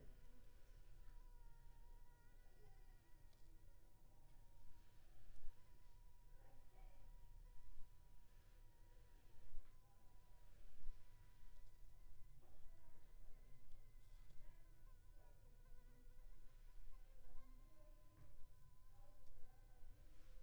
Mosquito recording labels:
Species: Anopheles funestus s.s.; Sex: female; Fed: unfed; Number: one; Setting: cup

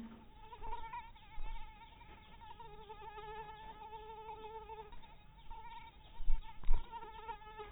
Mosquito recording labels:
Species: mosquito; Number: one; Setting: cup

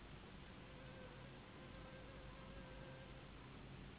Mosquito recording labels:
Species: Anopheles gambiae s.s.; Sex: female; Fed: unfed; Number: one; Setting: insect culture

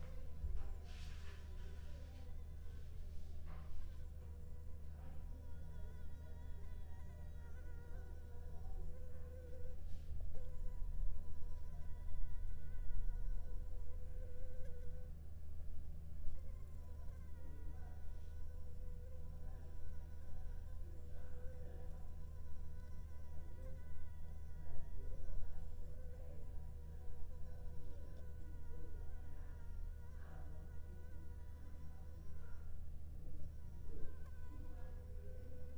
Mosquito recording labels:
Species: Anopheles arabiensis; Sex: female; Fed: unfed; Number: one; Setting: cup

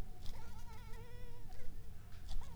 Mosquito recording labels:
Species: Anopheles arabiensis; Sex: female; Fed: unfed; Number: one; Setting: cup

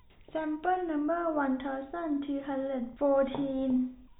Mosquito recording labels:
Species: no mosquito; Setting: cup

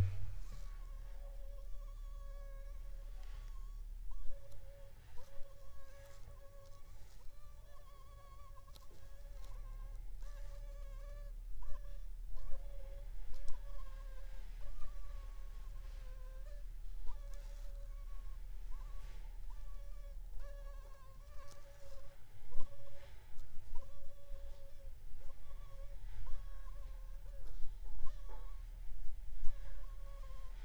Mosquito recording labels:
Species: Anopheles funestus s.s.; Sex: female; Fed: unfed; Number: one; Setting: cup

